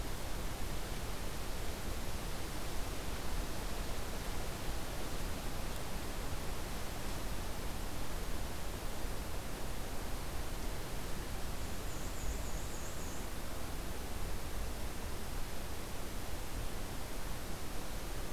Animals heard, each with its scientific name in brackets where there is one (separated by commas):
Black-and-white Warbler (Mniotilta varia)